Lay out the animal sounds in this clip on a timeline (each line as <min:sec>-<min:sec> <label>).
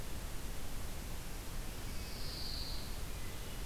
0:01.9-0:03.0 Pine Warbler (Setophaga pinus)